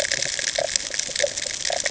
{"label": "ambient", "recorder": "HydroMoth"}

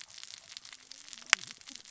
{"label": "biophony, cascading saw", "recorder": "SoundTrap 600 or HydroMoth"}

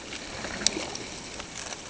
{"label": "ambient", "recorder": "HydroMoth"}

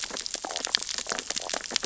{"label": "biophony, sea urchins (Echinidae)", "recorder": "SoundTrap 600 or HydroMoth"}
{"label": "biophony, stridulation", "recorder": "SoundTrap 600 or HydroMoth"}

